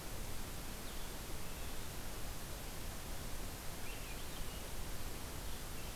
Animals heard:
Eastern Wood-Pewee (Contopus virens)

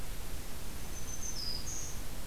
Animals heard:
Black-throated Green Warbler (Setophaga virens)

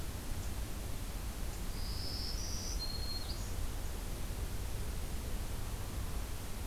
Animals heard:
Black-throated Green Warbler (Setophaga virens)

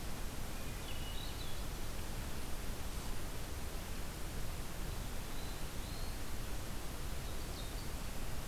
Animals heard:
Swainson's Thrush (Catharus ustulatus)
Eastern Wood-Pewee (Contopus virens)
Ovenbird (Seiurus aurocapilla)

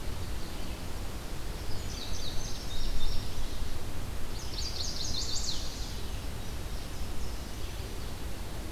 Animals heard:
Chestnut-sided Warbler (Setophaga pensylvanica)
Indigo Bunting (Passerina cyanea)

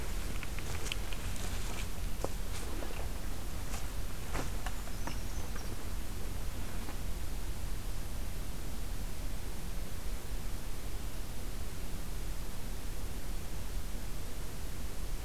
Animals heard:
Brown Creeper (Certhia americana)

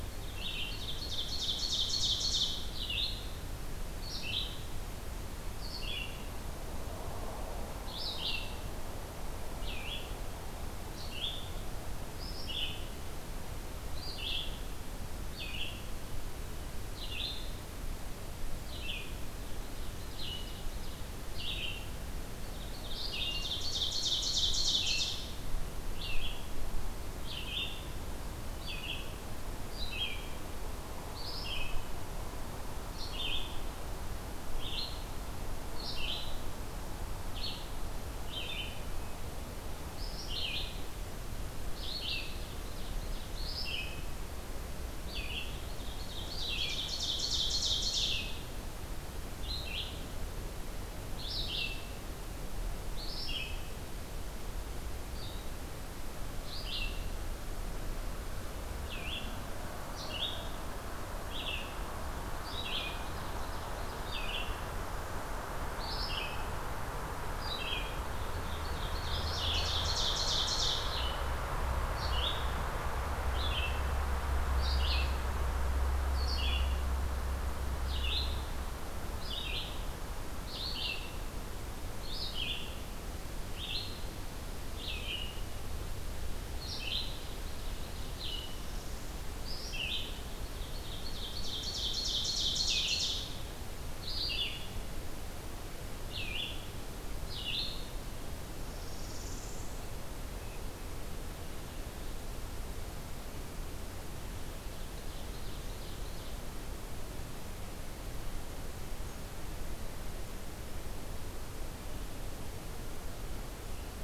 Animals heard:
Ovenbird (Seiurus aurocapilla)
Red-eyed Vireo (Vireo olivaceus)
Northern Parula (Setophaga americana)

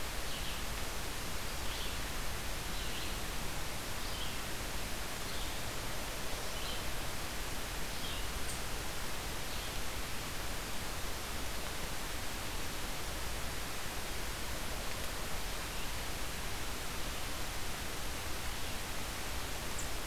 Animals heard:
Red-eyed Vireo (Vireo olivaceus)

